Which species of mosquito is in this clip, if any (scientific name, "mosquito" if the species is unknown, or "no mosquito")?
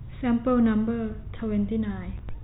no mosquito